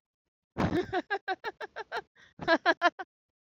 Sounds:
Laughter